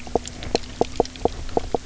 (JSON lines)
{"label": "biophony, knock croak", "recorder": "SoundTrap 300"}